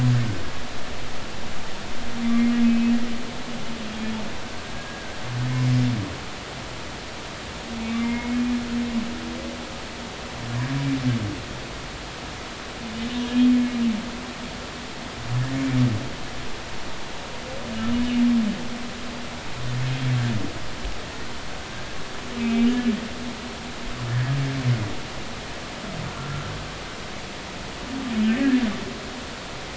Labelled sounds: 2.2	2.9	humpback whale, 2.3 to 2.6 kHz
4.8	5.2	humpback whale, 1.5 to 1.7 kHz
7.8	8.4	humpback whale, 0.90 to 2.4 kHz
13.2	13.5	humpback whale, 3.2 to 3.3 kHz
22.4	22.7	humpback whale, 2.2 to 2.4 kHz
26.1	26.4	humpback whale, 1.3 to 1.4 kHz
28.3	28.5	humpback whale, 1.7 to 2.0 kHz

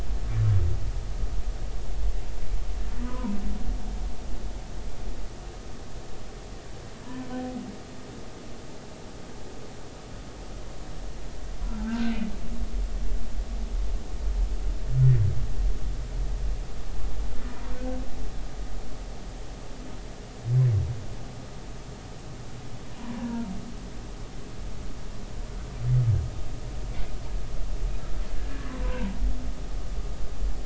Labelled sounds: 3.0	3.3	humpback whale, 0.86 to 1.3 kHz
7.0	7.3	humpback whale, 0.90 to 1.1 kHz
11.6	12.1	humpback whale, 0.83 to 1.6 kHz
22.9	23.5	humpback whale, 0.86 to 1.5 kHz
28.8	29.1	humpback whale, 0.90 to 1.1 kHz

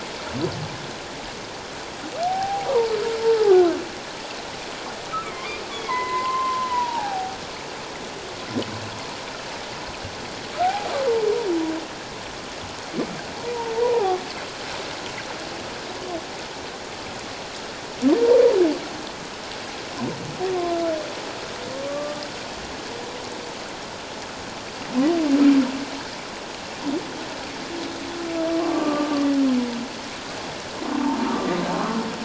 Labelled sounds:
2.2	2.9	humpback whale, 0.78 to 1.2 kHz
3.2	3.6	humpback whale, 0.78 to 0.97 kHz
5.2	7.4	humpback whale, 0.78 to 4.1 kHz
10.6	10.9	humpback whale, 0.78 to 0.88 kHz
13.8	14.2	humpback whale, 0.78 to 1.1 kHz
21.7	22.2	humpback whale, 1.1 to 1.2 kHz
28.7	29.2	humpback whale, 1.1 to 1.3 kHz
31.3	31.6	humpback whale, 1.1 to 1.3 kHz

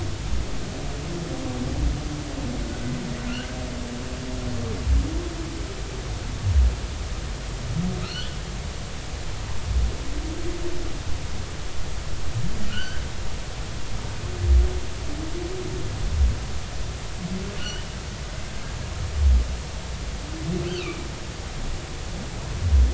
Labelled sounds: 8.0	8.4	humpback whale, 1.2 to 3.6 kHz
12.7	13.0	humpback whale, 1.3 to 3.2 kHz
17.6	17.8	humpback whale, 2.8 to 3.1 kHz
20.7	21.1	humpback whale, 2.2 to 3.2 kHz

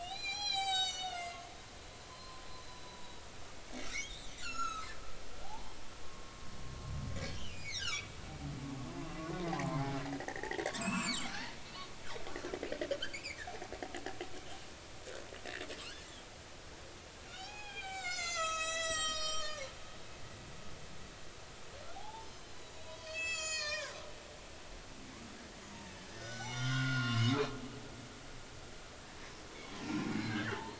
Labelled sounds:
0.0	1.5	humpback whale, 0.80 to 7.9 kHz
2.1	3.2	humpback whale, 0.86 to 4.2 kHz
3.8	4.9	humpback whale, 1.2 to 7.2 kHz
5.4	6.5	humpback whale, 0.80 to 1.2 kHz
7.3	8.1	humpback whale, 1.1 to 5.0 kHz
8.8	11.5	humpback whale, 0.80 to 8.0 kHz
13.0	13.4	humpback whale, 2.0 to 4.9 kHz
17.3	20.7	humpback whale, 0.80 to 8.0 kHz
21.9	24.0	humpback whale, 0.80 to 7.9 kHz
25.7	27.3	humpback whale, 0.83 to 6.6 kHz
29.8	30.7	humpback whale, 1.3 to 2.6 kHz

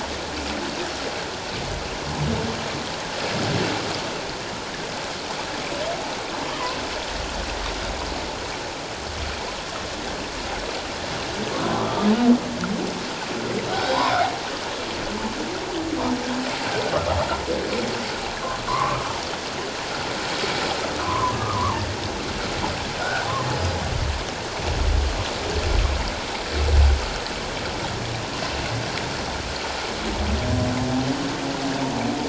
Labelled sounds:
13.7	14.1	humpback whale, 0.78 to 1.6 kHz
18.7	19.0	humpback whale, 0.94 to 1.3 kHz
21.0	21.8	humpback whale, 0.84 to 1.3 kHz
23.0	23.3	humpback whale, 1.3 to 1.7 kHz

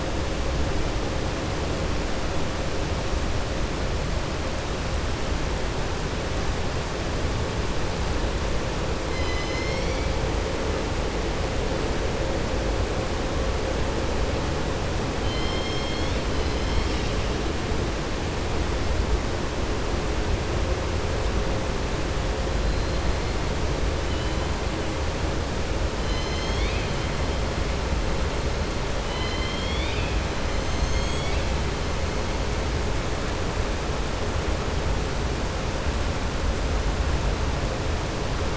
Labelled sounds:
15.2	16.2	killer whale, southern resident, 2.1 to 5.4 kHz
29.0	30.2	killer whale, southern resident, 2.0 to 5.1 kHz

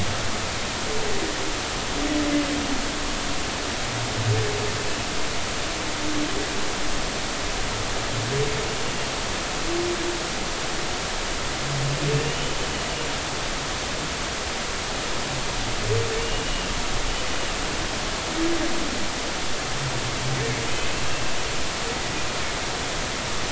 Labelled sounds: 12.1	12.5	humpback whale, 2.6 to 3.1 kHz
16.2	16.7	humpback whale, 2.7 to 3.0 kHz

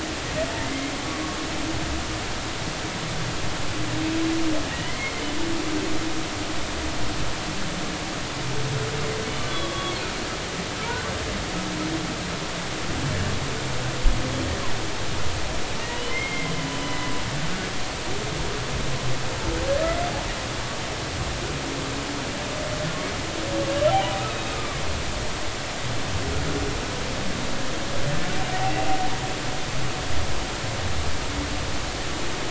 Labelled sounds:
0.6	0.9	humpback whale, 1.8 to 2.2 kHz
4.7	5.2	humpback whale, 1.8 to 2.2 kHz
9.4	10.0	humpback whale, 1.1 to 4.2 kHz
10.8	11.1	humpback whale, 1.3 to 1.6 kHz
16.1	17.1	humpback whale, 2.0 to 3.0 kHz
23.7	24.8	humpback whale, 1.1 to 3.2 kHz

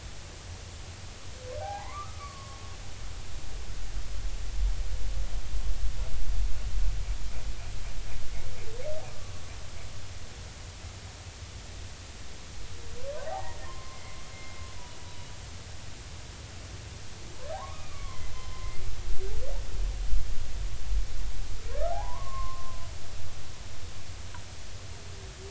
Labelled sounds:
1.6	2.6	humpback whale, 0.80 to 2.4 kHz
9.1	9.4	humpback whale, 0.99 to 1.2 kHz
13.3	14.6	humpback whale, 0.80 to 2.2 kHz
17.5	18.7	humpback whale, 0.80 to 3.1 kHz
21.9	22.8	humpback whale, 0.80 to 1.2 kHz

